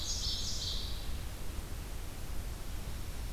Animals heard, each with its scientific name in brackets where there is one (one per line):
Ovenbird (Seiurus aurocapilla)